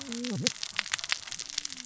{"label": "biophony, cascading saw", "recorder": "SoundTrap 600 or HydroMoth"}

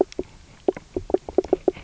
{"label": "biophony, knock croak", "recorder": "SoundTrap 300"}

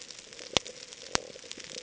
{"label": "ambient", "recorder": "HydroMoth"}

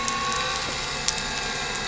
{"label": "anthrophony, boat engine", "recorder": "SoundTrap 300"}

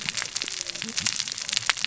{"label": "biophony, cascading saw", "recorder": "SoundTrap 600 or HydroMoth"}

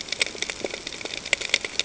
{"label": "ambient", "recorder": "HydroMoth"}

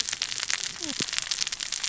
{"label": "biophony, cascading saw", "recorder": "SoundTrap 600 or HydroMoth"}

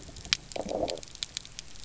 {"label": "biophony, low growl", "recorder": "SoundTrap 300"}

